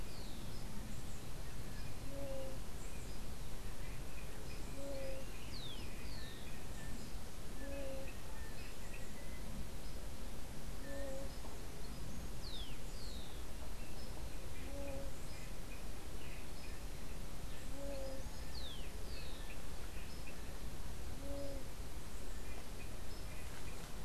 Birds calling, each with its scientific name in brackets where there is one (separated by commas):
Rufous-collared Sparrow (Zonotrichia capensis), unidentified bird